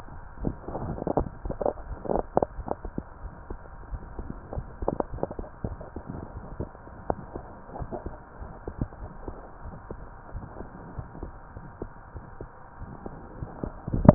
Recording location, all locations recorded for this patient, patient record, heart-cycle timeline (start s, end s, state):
aortic valve (AV)
aortic valve (AV)+pulmonary valve (PV)+tricuspid valve (TV)+mitral valve (MV)
#Age: Child
#Sex: Female
#Height: 121.0 cm
#Weight: 25.6 kg
#Pregnancy status: False
#Murmur: Unknown
#Murmur locations: nan
#Most audible location: nan
#Systolic murmur timing: nan
#Systolic murmur shape: nan
#Systolic murmur grading: nan
#Systolic murmur pitch: nan
#Systolic murmur quality: nan
#Diastolic murmur timing: nan
#Diastolic murmur shape: nan
#Diastolic murmur grading: nan
#Diastolic murmur pitch: nan
#Diastolic murmur quality: nan
#Outcome: Normal
#Campaign: 2015 screening campaign
0.00	7.76	unannotated
7.76	7.88	S1
7.88	8.02	systole
8.02	8.12	S2
8.12	8.40	diastole
8.40	8.52	S1
8.52	8.65	systole
8.65	8.74	S2
8.74	8.99	diastole
8.99	9.12	S1
9.12	9.26	systole
9.26	9.34	S2
9.34	9.62	diastole
9.62	9.78	S1
9.78	9.88	systole
9.88	10.02	S2
10.02	10.31	diastole
10.31	10.44	S1
10.44	10.57	systole
10.57	10.66	S2
10.66	10.95	diastole
10.95	11.08	S1
11.08	11.20	systole
11.20	11.34	S2
11.34	11.54	diastole
11.54	11.64	S1
11.64	11.78	systole
11.78	11.90	S2
11.90	12.12	diastole
12.12	12.24	S1
12.24	12.37	systole
12.37	12.50	S2
12.50	12.77	diastole
12.77	12.88	S1
12.88	13.03	systole
13.03	13.12	S2
13.12	13.38	diastole
13.38	13.50	S1
13.50	13.62	systole
13.62	13.74	S2
13.74	14.14	unannotated